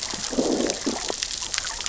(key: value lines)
label: biophony, growl
recorder: SoundTrap 600 or HydroMoth